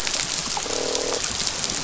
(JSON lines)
{"label": "biophony, croak", "recorder": "SoundTrap 500"}